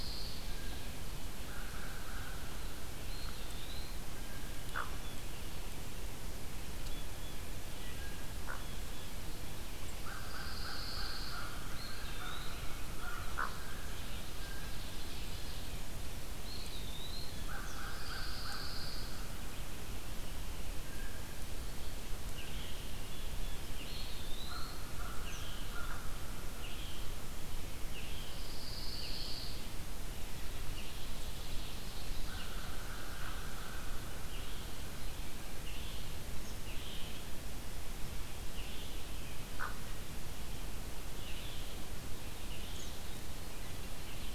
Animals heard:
Ovenbird (Seiurus aurocapilla)
Blue Jay (Cyanocitta cristata)
American Crow (Corvus brachyrhynchos)
Eastern Kingbird (Tyrannus tyrannus)
Eastern Wood-Pewee (Contopus virens)
Hooded Merganser (Lophodytes cucullatus)
Pine Warbler (Setophaga pinus)
Red-eyed Vireo (Vireo olivaceus)

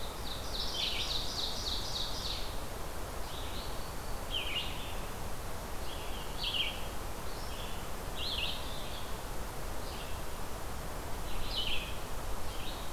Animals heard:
Ovenbird (Seiurus aurocapilla)
Red-eyed Vireo (Vireo olivaceus)

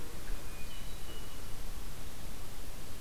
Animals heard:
Hermit Thrush (Catharus guttatus)

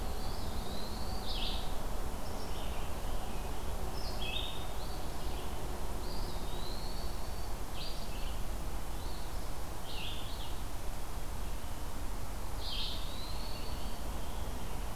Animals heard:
Eastern Wood-Pewee (Contopus virens)
Scarlet Tanager (Piranga olivacea)
Eastern Phoebe (Sayornis phoebe)
Red-eyed Vireo (Vireo olivaceus)

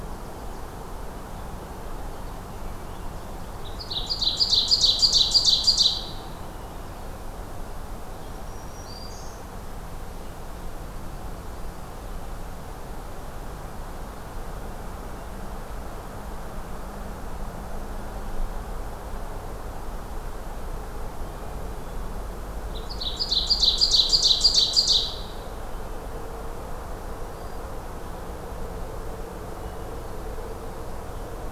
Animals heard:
Ovenbird (Seiurus aurocapilla)
Black-throated Green Warbler (Setophaga virens)

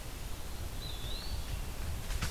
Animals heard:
Eastern Wood-Pewee (Contopus virens)

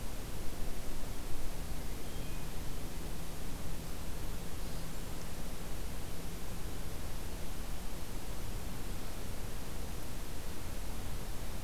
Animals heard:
Hermit Thrush (Catharus guttatus)

